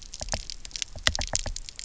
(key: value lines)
label: biophony, knock
recorder: SoundTrap 300